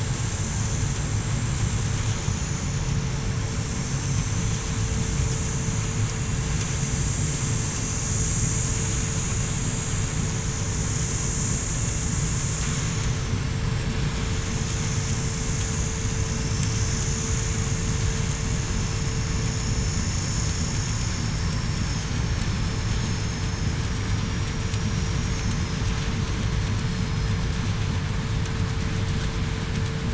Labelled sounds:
0.2	0.5	vessel noise, 7.5 to 7.6 kHz
22.5	24.5	vessel noise, 5.2 to 5.8 kHz
26.8	27.5	vessel noise, 4.9 to 5.2 kHz

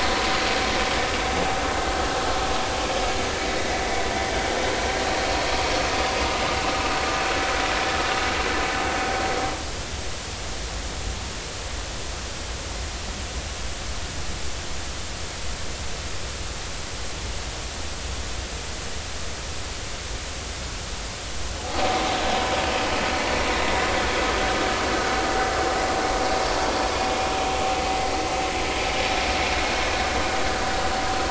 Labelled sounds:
3.6	4.0	vessel noise, 1.9 to 2.3 kHz

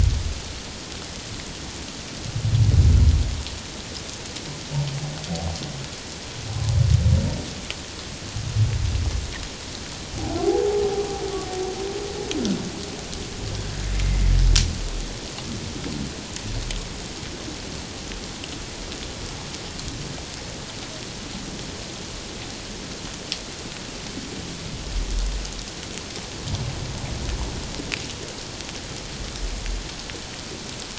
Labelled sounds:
10.4	10.8	humpback whale, 0.78 to 0.91 kHz

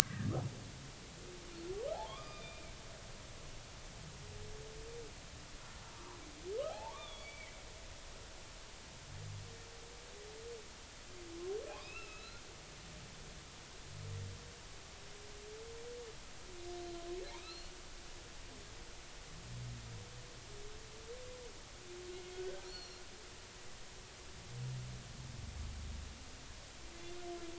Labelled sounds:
0.0	0.3	humpback whale, 1.5 to 2.1 kHz
1.9	2.7	humpback whale, 0.80 to 4.9 kHz
6.7	7.5	humpback whale, 0.80 to 3.6 kHz
11.7	13.2	humpback whale, 1.2 to 5.3 kHz
17.3	17.7	humpback whale, 2.1 to 4.4 kHz
22.3	23.0	humpback whale, 1.4 to 4.4 kHz

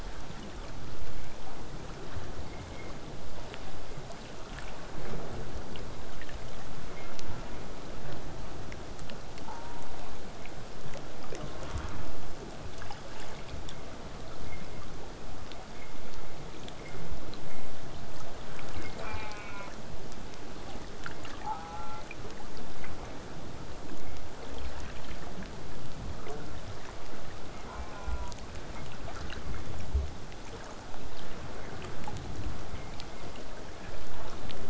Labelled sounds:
9.5	9.9	killer whale, southern resident, J pod, call S04, 0.73 to 1.5 kHz
11.3	11.9	killer whale, southern resident, J pod, call S04, 0.16 to 1.2 kHz
19.0	19.7	killer whale, southern resident, J pod, call S04, 0.32 to 4.7 kHz
21.4	22.0	killer whale, southern resident, J pod, call S04, 0.65 to 2.9 kHz
27.7	28.4	killer whale, southern resident, J pod, call S04, 0.53 to 2.5 kHz

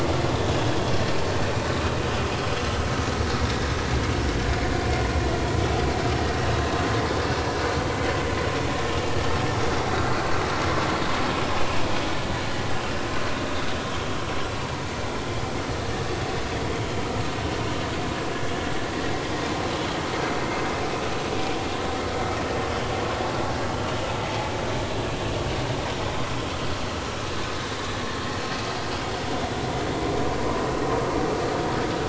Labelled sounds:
26.0	26.3	vessel noise, 0.96 to 1.1 kHz

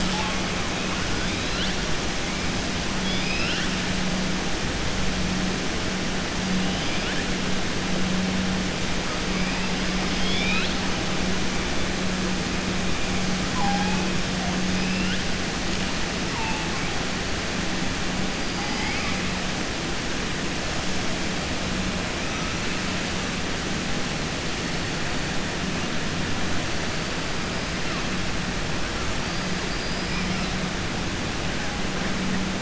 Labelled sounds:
3.0	3.7	killer whale, southern resident, 1.4 to 5.4 kHz
10.0	10.8	killer whale, southern resident, 1.3 to 5.5 kHz
29.6	30.3	killer whale, southern resident, 4.5 to 5.2 kHz

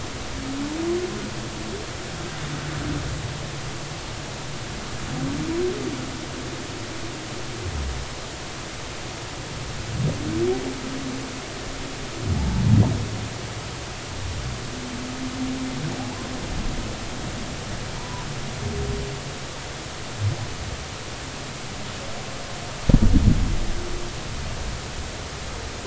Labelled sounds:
12.3	12.6	humpback whale, 0.80 to 0.93 kHz
18.0	18.2	humpback whale, 0.90 to 1.1 kHz

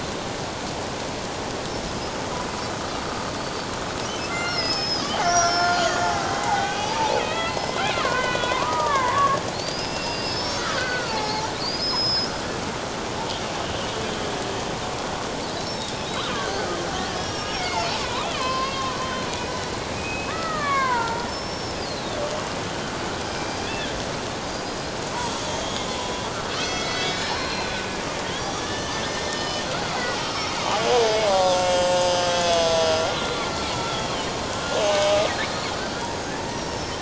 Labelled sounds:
4.3	12.3	killer whale, Bigg's (transient), 0.78 to 7.2 kHz
16.1	16.5	killer whale, Bigg's (transient), 1.1 to 3.9 kHz
17.1	19.3	killer whale, Bigg's (transient), 0.91 to 5.9 kHz
19.9	22.2	killer whale, Bigg's (transient), 0.88 to 5.5 kHz
23.3	23.9	killer whale, Bigg's (transient), 2.3 to 4.9 kHz
24.4	28.0	killer whale, Bigg's (transient), 1.7 to 6.2 kHz
28.3	31.0	killer whale, Bigg's (transient), 1.7 to 6.1 kHz
31.3	35.3	killer whale, Bigg's (transient), 0.78 to 6.5 kHz
35.6	36.9	killer whale, Bigg's (transient), 5.2 to 7.1 kHz

